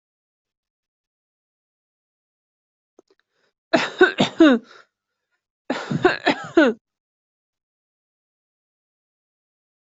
{"expert_labels": [{"quality": "good", "cough_type": "dry", "dyspnea": false, "wheezing": false, "stridor": false, "choking": false, "congestion": false, "nothing": true, "diagnosis": "healthy cough", "severity": "pseudocough/healthy cough"}], "age": 59, "gender": "female", "respiratory_condition": false, "fever_muscle_pain": false, "status": "COVID-19"}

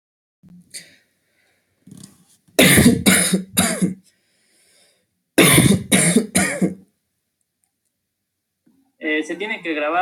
{"expert_labels": [{"quality": "good", "cough_type": "dry", "dyspnea": false, "wheezing": false, "stridor": false, "choking": false, "congestion": false, "nothing": true, "diagnosis": "COVID-19", "severity": "mild"}], "age": 23, "gender": "male", "respiratory_condition": false, "fever_muscle_pain": false, "status": "symptomatic"}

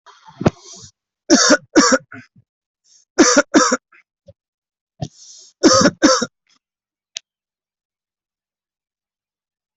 {"expert_labels": [{"quality": "ok", "cough_type": "dry", "dyspnea": false, "wheezing": false, "stridor": false, "choking": false, "congestion": false, "nothing": true, "diagnosis": "healthy cough", "severity": "pseudocough/healthy cough"}]}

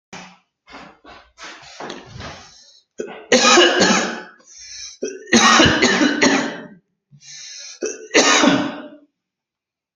{"expert_labels": [{"quality": "ok", "cough_type": "dry", "dyspnea": false, "wheezing": false, "stridor": false, "choking": false, "congestion": false, "nothing": true, "diagnosis": "upper respiratory tract infection", "severity": "mild"}]}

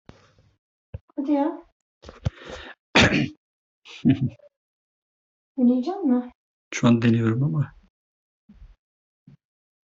{"expert_labels": [{"quality": "ok", "cough_type": "unknown", "dyspnea": false, "wheezing": false, "stridor": false, "choking": false, "congestion": false, "nothing": true, "diagnosis": "healthy cough", "severity": "pseudocough/healthy cough"}], "age": 48, "gender": "male", "respiratory_condition": false, "fever_muscle_pain": false, "status": "symptomatic"}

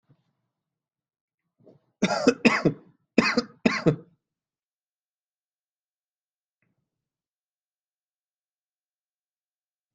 {"expert_labels": [{"quality": "good", "cough_type": "dry", "dyspnea": false, "wheezing": false, "stridor": false, "choking": false, "congestion": false, "nothing": true, "diagnosis": "upper respiratory tract infection", "severity": "mild"}], "age": 31, "gender": "male", "respiratory_condition": false, "fever_muscle_pain": false, "status": "healthy"}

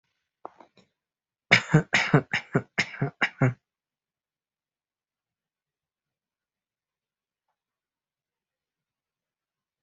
{"expert_labels": [{"quality": "good", "cough_type": "dry", "dyspnea": false, "wheezing": false, "stridor": false, "choking": false, "congestion": false, "nothing": true, "diagnosis": "healthy cough", "severity": "pseudocough/healthy cough"}], "age": 21, "gender": "male", "respiratory_condition": false, "fever_muscle_pain": false, "status": "COVID-19"}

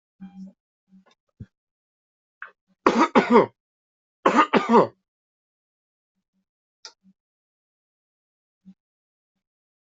{"expert_labels": [{"quality": "good", "cough_type": "dry", "dyspnea": false, "wheezing": false, "stridor": false, "choking": false, "congestion": false, "nothing": true, "diagnosis": "upper respiratory tract infection", "severity": "mild"}], "age": 43, "gender": "male", "respiratory_condition": false, "fever_muscle_pain": false, "status": "healthy"}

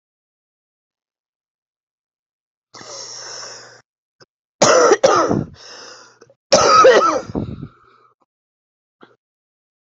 {"expert_labels": [{"quality": "ok", "cough_type": "dry", "dyspnea": false, "wheezing": false, "stridor": false, "choking": false, "congestion": false, "nothing": true, "diagnosis": "COVID-19", "severity": "mild"}], "age": 31, "gender": "female", "respiratory_condition": false, "fever_muscle_pain": false, "status": "symptomatic"}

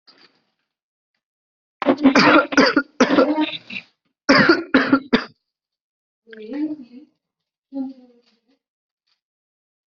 {"expert_labels": [{"quality": "good", "cough_type": "dry", "dyspnea": false, "wheezing": false, "stridor": false, "choking": false, "congestion": false, "nothing": true, "diagnosis": "upper respiratory tract infection", "severity": "mild"}], "age": 26, "gender": "male", "respiratory_condition": false, "fever_muscle_pain": true, "status": "symptomatic"}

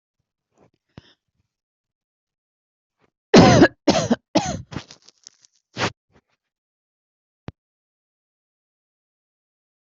{"expert_labels": [{"quality": "good", "cough_type": "dry", "dyspnea": false, "wheezing": false, "stridor": false, "choking": false, "congestion": false, "nothing": true, "diagnosis": "COVID-19", "severity": "mild"}], "age": 36, "gender": "female", "respiratory_condition": false, "fever_muscle_pain": false, "status": "healthy"}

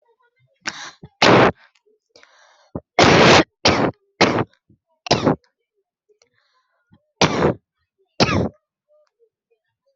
{"expert_labels": [{"quality": "ok", "cough_type": "unknown", "dyspnea": false, "wheezing": false, "stridor": false, "choking": false, "congestion": false, "nothing": true, "diagnosis": "COVID-19", "severity": "mild"}], "age": 20, "gender": "female", "respiratory_condition": true, "fever_muscle_pain": false, "status": "symptomatic"}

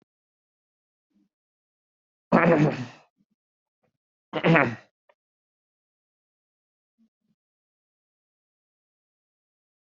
{"expert_labels": [{"quality": "no cough present", "cough_type": "unknown", "dyspnea": false, "wheezing": false, "stridor": false, "choking": false, "congestion": false, "nothing": true, "diagnosis": "healthy cough", "severity": "pseudocough/healthy cough"}], "age": 30, "gender": "female", "respiratory_condition": true, "fever_muscle_pain": true, "status": "healthy"}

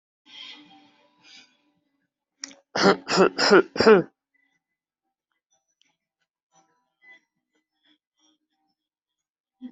{"expert_labels": [{"quality": "ok", "cough_type": "dry", "dyspnea": false, "wheezing": false, "stridor": false, "choking": false, "congestion": false, "nothing": true, "diagnosis": "healthy cough", "severity": "pseudocough/healthy cough"}], "age": 20, "gender": "male", "respiratory_condition": true, "fever_muscle_pain": true, "status": "healthy"}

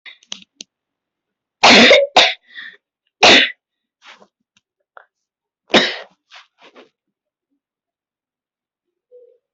{"expert_labels": [{"quality": "poor", "cough_type": "dry", "dyspnea": false, "wheezing": false, "stridor": false, "choking": false, "congestion": false, "nothing": true, "diagnosis": "healthy cough", "severity": "pseudocough/healthy cough"}, {"quality": "ok", "cough_type": "dry", "dyspnea": false, "wheezing": false, "stridor": false, "choking": false, "congestion": false, "nothing": true, "diagnosis": "COVID-19", "severity": "unknown"}, {"quality": "good", "cough_type": "wet", "dyspnea": false, "wheezing": false, "stridor": false, "choking": false, "congestion": false, "nothing": true, "diagnosis": "upper respiratory tract infection", "severity": "mild"}, {"quality": "good", "cough_type": "dry", "dyspnea": false, "wheezing": false, "stridor": false, "choking": false, "congestion": true, "nothing": false, "diagnosis": "lower respiratory tract infection", "severity": "mild"}], "age": 24, "gender": "other", "respiratory_condition": false, "fever_muscle_pain": false, "status": "symptomatic"}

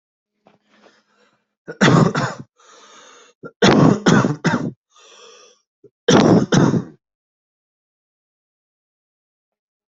{"expert_labels": [{"quality": "good", "cough_type": "wet", "dyspnea": false, "wheezing": false, "stridor": false, "choking": false, "congestion": false, "nothing": true, "diagnosis": "upper respiratory tract infection", "severity": "mild"}], "age": 28, "gender": "male", "respiratory_condition": false, "fever_muscle_pain": false, "status": "COVID-19"}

